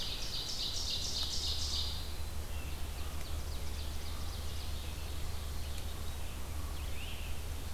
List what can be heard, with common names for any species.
Ovenbird, Red-eyed Vireo, Great Crested Flycatcher